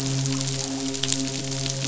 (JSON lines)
{"label": "biophony, midshipman", "recorder": "SoundTrap 500"}